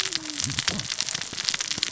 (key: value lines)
label: biophony, cascading saw
recorder: SoundTrap 600 or HydroMoth